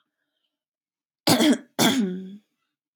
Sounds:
Throat clearing